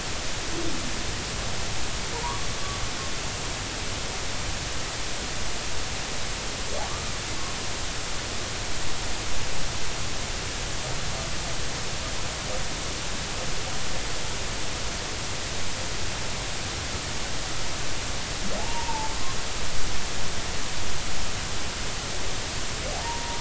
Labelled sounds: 2.1	2.5	humpback whale, 0.86 to 1.2 kHz
6.8	7.1	humpback whale, 1.0 to 1.3 kHz
18.6	19.1	humpback whale, 0.80 to 0.99 kHz
22.9	23.3	humpback whale, 0.80 to 1.0 kHz

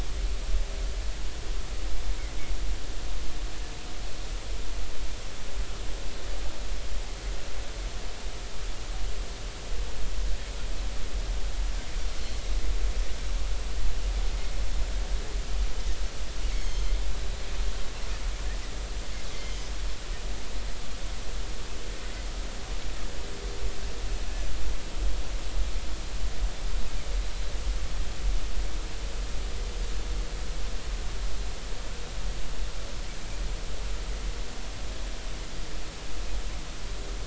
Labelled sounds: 16.5	16.9	Pacific white-sided dolphin, 2.0 to 6.6 kHz
19.4	19.7	Pacific white-sided dolphin, 2.9 to 5.1 kHz

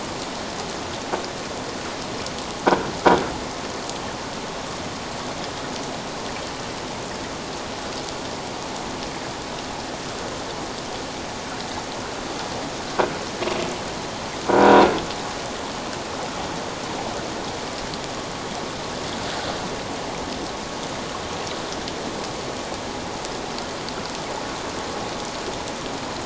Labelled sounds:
14.5	14.8	croaking sound likely from a nearby submerged object, 1.4 to 1.6 kHz

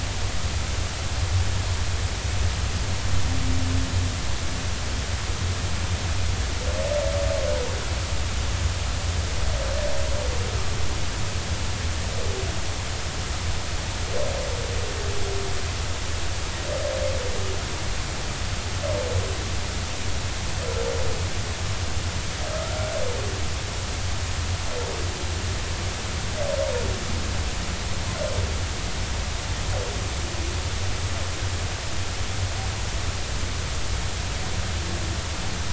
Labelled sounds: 22.5	22.9	humpback whale, 1.2 to 1.4 kHz

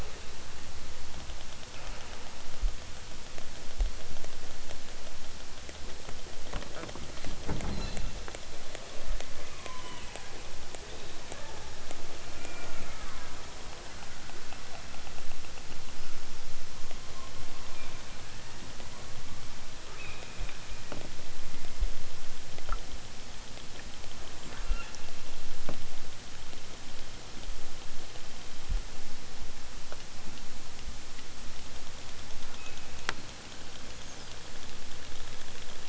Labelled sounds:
1.7	2.3	killer whale, southern Alaska resident, 0.32 to 3.1 kHz
7.7	8.1	killer whale, southern Alaska resident, 2.1 to 7.6 kHz
9.4	10.3	killer whale, southern Alaska resident, 0.69 to 3.8 kHz
11.2	11.7	killer whale, southern Alaska resident, 0.51 to 2.3 kHz
12.2	13.5	killer whale, southern Alaska resident, 0.69 to 2.8 kHz
17.4	17.9	killer whale, southern Alaska resident, 0.78 to 2.9 kHz
18.2	18.9	killer whale, southern Alaska resident, 1.4 to 3.5 kHz
19.8	20.8	killer whale, southern Alaska resident, 0.83 to 4.4 kHz
24.4	25.0	killer whale, southern Alaska resident, 0.55 to 4.8 kHz
32.5	32.8	killer whale, southern Alaska resident, 0.97 to 3.0 kHz

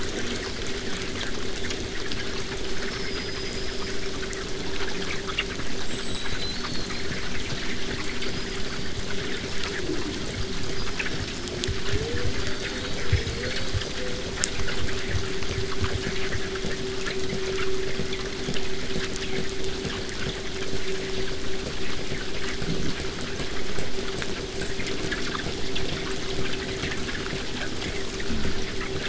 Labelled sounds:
2.6	4.1	killer whale, southern resident, 4.8 to 8.0 kHz
5.8	7.2	killer whale, southern resident, 3.6 to 8.0 kHz
8.1	9.0	killer whale, southern resident, 4.3 to 8.0 kHz
10.7	14.0	killer whale, southern resident, 3.0 to 5.8 kHz

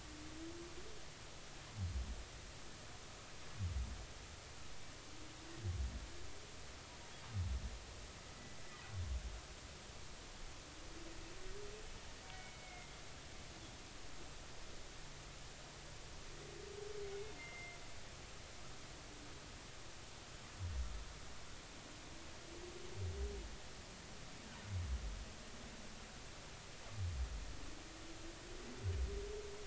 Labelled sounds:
12.2	13.0	humpback whale, 2.0 to 2.3 kHz
17.0	17.8	humpback whale, 2.0 to 2.3 kHz

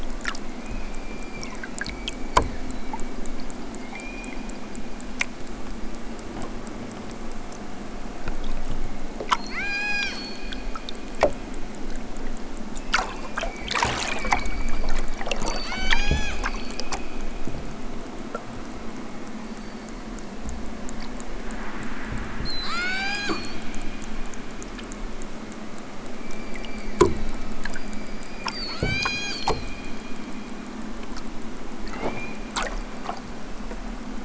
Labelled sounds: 0.5	3.1	killer whale, southern Alaska resident, 0.69 to 5.0 kHz
3.9	4.5	killer whale, southern Alaska resident, 1.6 to 6.2 kHz
9.4	10.6	killer whale, southern Alaska resident, 0.64 to 8.0 kHz
12.8	13.7	killer whale, southern Alaska resident, 1.4 to 4.9 kHz
14.2	16.8	killer whale, southern Alaska resident, 0.64 to 8.0 kHz
19.3	20.9	killer whale, southern Alaska resident, 1.8 to 4.7 kHz
22.3	23.6	killer whale, southern Alaska resident, 0.46 to 8.0 kHz
26.0	29.7	killer whale, southern Alaska resident, 0.32 to 8.0 kHz
31.8	32.3	killer whale, southern Alaska resident, 1.6 to 7.4 kHz
32.7	34.0	killer whale, southern Alaska resident, 2.4 to 5.4 kHz

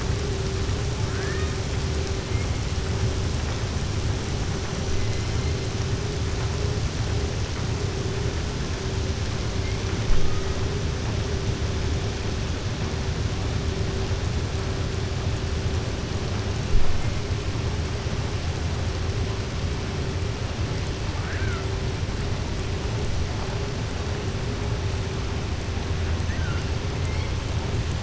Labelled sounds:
1.0	1.5	killer whale, southern resident, 1.2 to 2.5 kHz
21.1	21.6	killer whale, southern resident, 0.89 to 2.4 kHz
26.2	26.6	killer whale, southern resident, 1.4 to 2.1 kHz

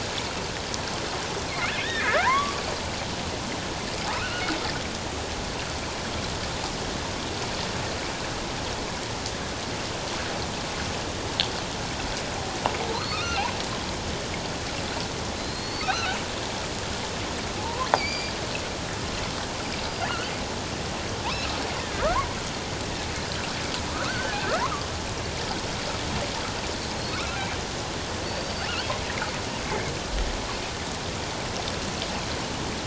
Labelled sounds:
1.5	2.6	killer whale, offshore, 0.88 to 2.7 kHz
4.1	4.5	killer whale, offshore, 1.2 to 3.0 kHz
12.9	13.5	killer whale, offshore, 2.3 to 4.5 kHz
15.3	16.2	killer whale, offshore, 1.2 to 4.5 kHz
17.6	18.3	killer whale, offshore, 0.78 to 4.9 kHz
19.8	20.1	killer whale, offshore, 4.8 to 4.9 kHz
21.2	21.5	killer whale, offshore, 2.3 to 2.8 kHz
24.0	24.6	killer whale, offshore, 1.2 to 1.9 kHz
28.2	28.7	killer whale, offshore, 4.4 to 4.8 kHz
29.6	29.9	killer whale, offshore, 2.0 to 2.2 kHz

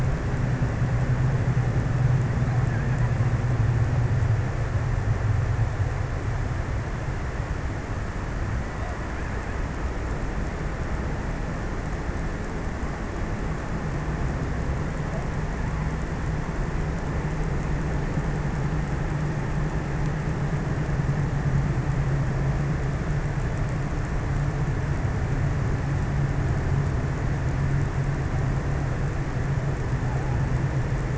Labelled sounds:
2.2	3.6	killer whale, offshore, 0.18 to 2.4 kHz

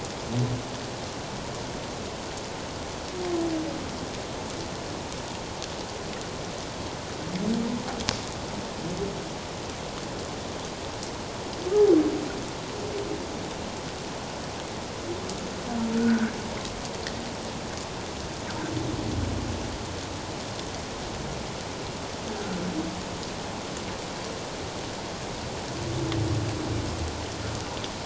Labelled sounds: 15.9	16.4	humpback whale, 1.3 to 1.7 kHz

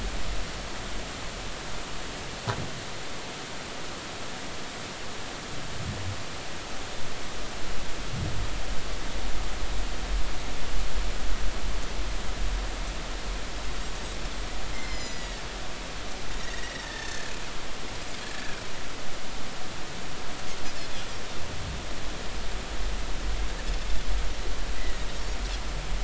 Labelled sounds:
14.7	15.4	Pacific white-sided dolphin, 1.7 to 8.0 kHz
16.4	17.3	Pacific white-sided dolphin, 1.6 to 2.0 kHz
18.2	18.6	Pacific white-sided dolphin, 1.6 to 1.8 kHz
24.8	25.0	Pacific white-sided dolphin, 1.9 to 2.1 kHz

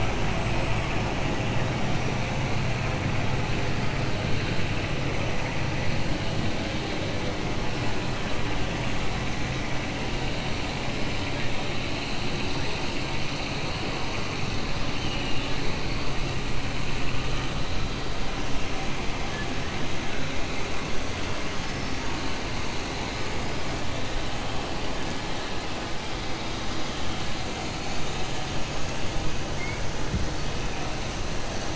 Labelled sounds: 14.9	15.6	killer whale, 2.4 to 3.9 kHz
21.4	22.0	killer whale, 4.4 to 5.8 kHz

